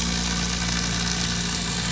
{"label": "anthrophony, boat engine", "recorder": "SoundTrap 500"}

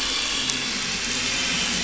{"label": "anthrophony, boat engine", "recorder": "SoundTrap 500"}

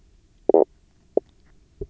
{"label": "biophony, knock croak", "recorder": "SoundTrap 300"}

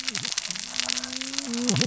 {"label": "biophony, cascading saw", "recorder": "SoundTrap 600 or HydroMoth"}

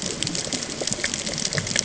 {"label": "ambient", "recorder": "HydroMoth"}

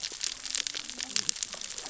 {"label": "biophony, cascading saw", "recorder": "SoundTrap 600 or HydroMoth"}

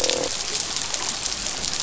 {"label": "biophony, croak", "recorder": "SoundTrap 500"}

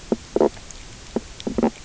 {"label": "biophony, knock croak", "recorder": "SoundTrap 300"}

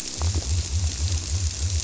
{"label": "biophony", "recorder": "SoundTrap 300"}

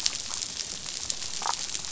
{"label": "biophony, damselfish", "recorder": "SoundTrap 500"}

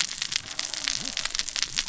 {"label": "biophony, cascading saw", "recorder": "SoundTrap 600 or HydroMoth"}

